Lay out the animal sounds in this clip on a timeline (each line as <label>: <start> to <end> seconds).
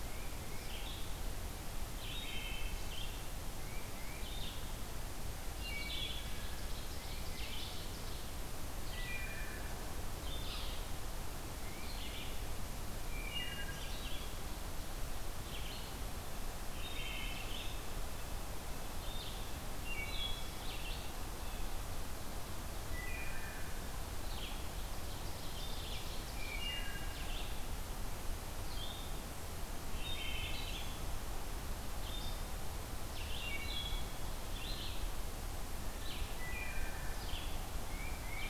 Red-eyed Vireo (Vireo olivaceus): 0.0 to 38.5 seconds
Tufted Titmouse (Baeolophus bicolor): 0.0 to 0.7 seconds
Wood Thrush (Hylocichla mustelina): 1.9 to 2.7 seconds
Tufted Titmouse (Baeolophus bicolor): 3.4 to 4.3 seconds
Wood Thrush (Hylocichla mustelina): 5.4 to 6.2 seconds
Ovenbird (Seiurus aurocapilla): 5.6 to 8.0 seconds
Tufted Titmouse (Baeolophus bicolor): 6.9 to 7.8 seconds
Wood Thrush (Hylocichla mustelina): 8.9 to 9.6 seconds
Wood Thrush (Hylocichla mustelina): 13.1 to 13.9 seconds
Wood Thrush (Hylocichla mustelina): 16.7 to 17.5 seconds
Wood Thrush (Hylocichla mustelina): 19.8 to 20.4 seconds
Wood Thrush (Hylocichla mustelina): 22.8 to 23.7 seconds
Ovenbird (Seiurus aurocapilla): 24.5 to 26.0 seconds
Wood Thrush (Hylocichla mustelina): 26.3 to 27.3 seconds
Wood Thrush (Hylocichla mustelina): 29.9 to 30.6 seconds
Wood Thrush (Hylocichla mustelina): 33.3 to 34.1 seconds
Wood Thrush (Hylocichla mustelina): 36.2 to 37.0 seconds
Tufted Titmouse (Baeolophus bicolor): 37.8 to 38.5 seconds